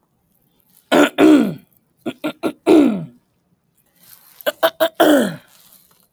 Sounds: Throat clearing